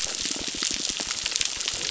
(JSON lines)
{"label": "biophony", "recorder": "SoundTrap 600"}